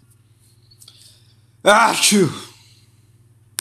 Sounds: Sneeze